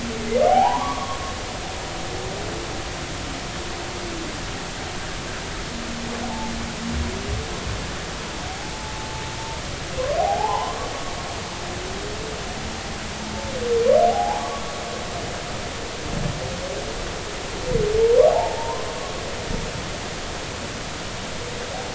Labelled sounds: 0.5	1.2	humpback whale, 0.80 to 1.2 kHz
10.2	10.8	humpback whale, 0.80 to 1.2 kHz
14.1	14.6	humpback whale, 0.80 to 1.2 kHz
18.3	18.9	humpback whale, 0.80 to 1.1 kHz

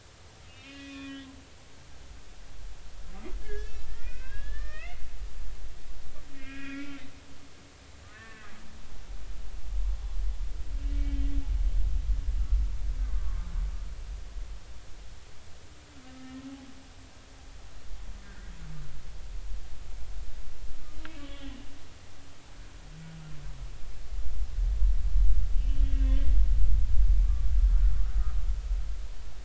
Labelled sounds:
0.5	1.2	humpback whale, 1.1 to 3.6 kHz
3.4	5.0	humpback whale, 1.1 to 3.6 kHz
6.3	7.0	humpback whale, 1.3 to 3.5 kHz
8.1	8.5	humpback whale, 1.0 to 1.9 kHz
10.9	11.2	humpback whale, 2.2 to 2.3 kHz
13.1	13.4	humpback whale, 1.0 to 1.2 kHz
16.1	16.4	humpback whale, 1.2 to 1.9 kHz
18.2	18.5	humpback whale, 1.4 to 1.7 kHz
21.2	21.6	humpback whale, 1.1 to 3.4 kHz
25.6	26.2	humpback whale, 1.8 to 3.4 kHz
27.2	27.5	humpback whale, 1.1 to 1.2 kHz

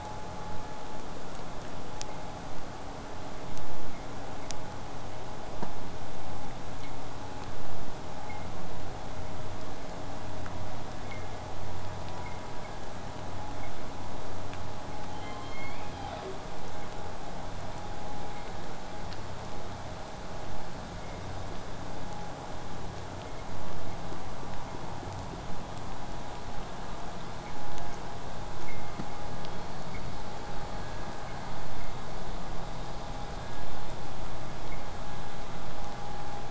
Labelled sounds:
15.1	16.4	killer whale, southern resident, J pod, call S01, 0.21 to 6.8 kHz

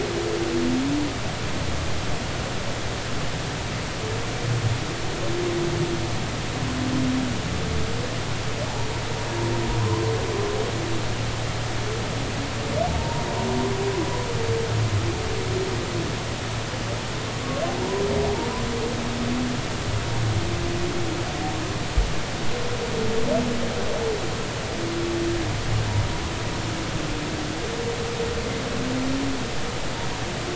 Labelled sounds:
9.8	10.1	humpback whale, 0.93 to 1.1 kHz
13.0	13.2	humpback whale, 0.86 to 0.99 kHz

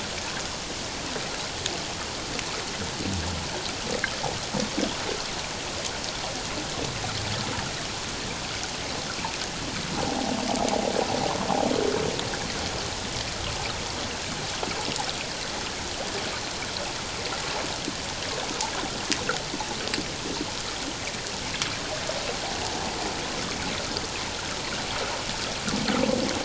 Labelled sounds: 10.1	10.3	humpback whale, 0.78 to 0.91 kHz

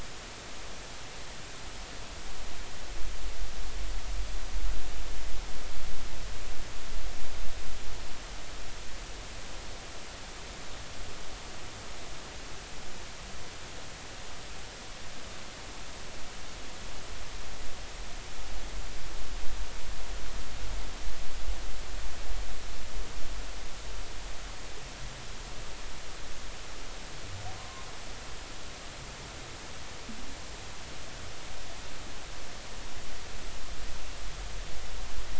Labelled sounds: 27.6	27.9	humpback whale, 0.99 to 1.1 kHz

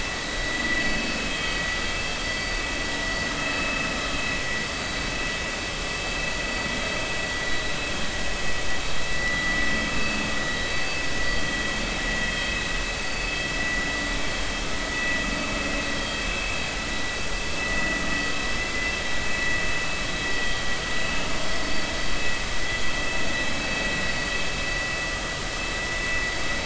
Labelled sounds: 1.1	1.6	vessel noise, 2.4 to 3.3 kHz
3.6	3.8	vessel noise, 2.5 to 2.6 kHz
9.1	9.6	vessel noise, 1.9 to 2.1 kHz
10.4	11.0	vessel noise, 3.8 to 4.6 kHz
12.4	12.7	vessel noise, 2.4 to 2.6 kHz
17.6	18.0	vessel noise, 1.9 to 2.0 kHz
22.2	22.4	vessel noise, 2.5 to 2.6 kHz

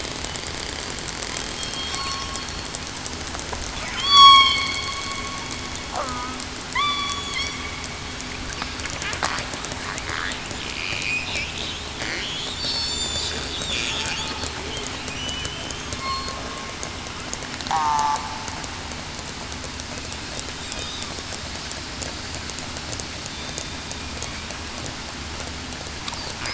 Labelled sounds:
1.6	2.0	killer whale, southern resident, 3.2 to 3.3 kHz
4.0	4.6	killer whale, southern resident, 1.0 to 6.8 kHz
6.0	6.4	killer whale, southern resident, 1.2 to 1.3 kHz
6.7	7.1	killer whale, southern resident, 1.9 to 2.4 kHz
12.5	13.2	killer whale, southern resident, 3.5 to 3.8 kHz
15.1	16.3	killer whale, southern resident, 2.9 to 7.6 kHz
17.7	18.0	killer whale, southern resident, 0.73 to 0.98 kHz

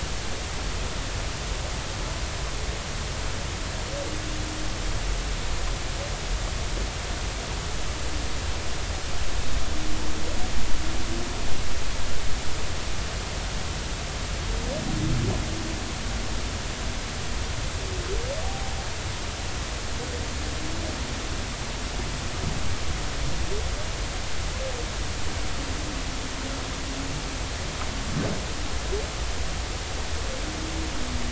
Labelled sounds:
18.4	18.7	humpback whale, 0.80 to 0.90 kHz

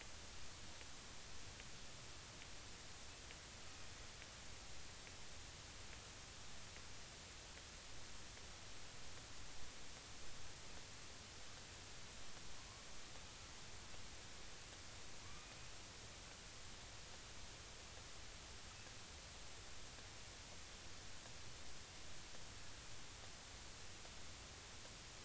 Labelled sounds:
15.3	15.6	killer whale, northern resident, A clan, AA subclan, 2.2 to 2.5 kHz

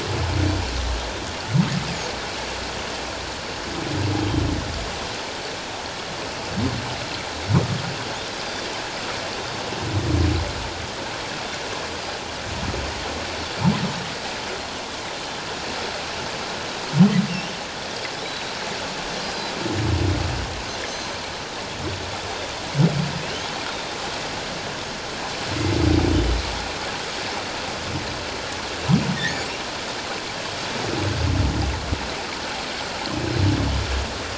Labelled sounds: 4.2	4.5	Pacific white-sided dolphin, 3.0 to 3.3 kHz
18.2	19.5	Pacific white-sided dolphin, 3.4 to 5.0 kHz
20.9	21.2	Pacific white-sided dolphin, 4.1 to 6.4 kHz
23.7	24.0	Pacific white-sided dolphin, 3.6 to 3.8 kHz
29.2	29.4	humpback whale, 1.7 to 2.0 kHz

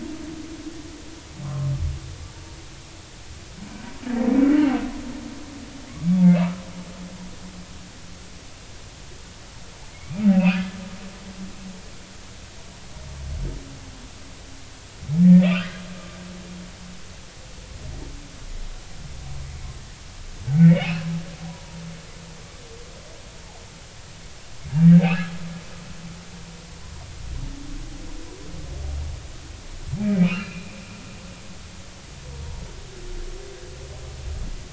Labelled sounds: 1.4	1.7	humpback whale, 0.99 to 1.4 kHz
9.9	10.6	humpback whale, 2.1 to 2.9 kHz
15.2	15.8	humpback whale, 1.2 to 2.0 kHz
20.6	21.8	humpback whale, 0.90 to 3.0 kHz
25.0	25.3	humpback whale, 2.1 to 2.8 kHz
30.2	30.7	humpback whale, 1.2 to 2.9 kHz

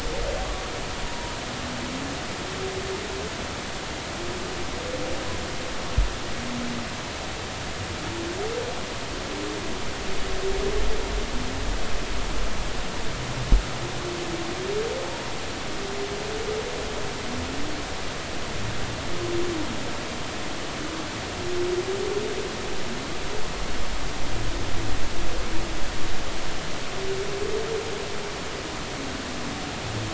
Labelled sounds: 1.0	1.3	humpback whale, 0.93 to 1.1 kHz

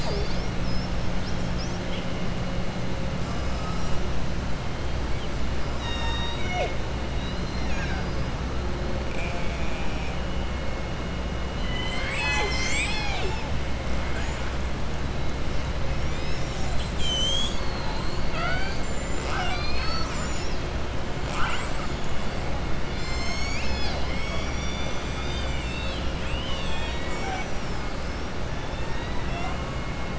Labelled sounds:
7.1	8.2	killer whale, southern resident, 0.81 to 6.6 kHz
9.0	10.1	killer whale, southern resident, 2.2 to 3.4 kHz

